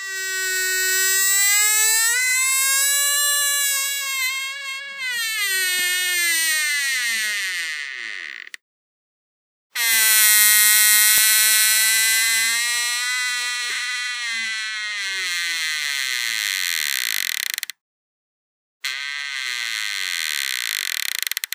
Does this object make a high pitched noise?
yes